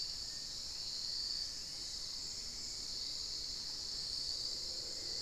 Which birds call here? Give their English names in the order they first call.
Black-faced Antthrush, Gray Antwren, Hauxwell's Thrush, Cinnamon-throated Woodcreeper